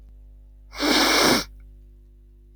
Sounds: Sniff